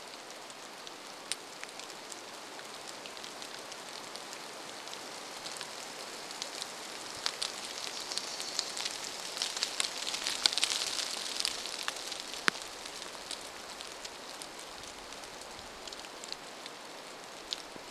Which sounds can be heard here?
rain